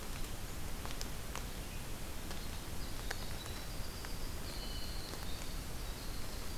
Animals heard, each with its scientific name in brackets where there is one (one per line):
Winter Wren (Troglodytes hiemalis)